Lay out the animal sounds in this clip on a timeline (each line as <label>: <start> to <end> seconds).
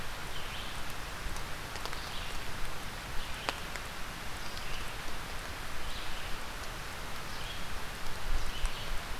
Red-eyed Vireo (Vireo olivaceus): 0.0 to 8.9 seconds